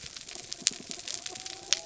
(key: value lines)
label: anthrophony, mechanical
recorder: SoundTrap 300

label: biophony
recorder: SoundTrap 300